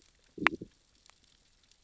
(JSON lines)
{"label": "biophony, growl", "recorder": "SoundTrap 600 or HydroMoth"}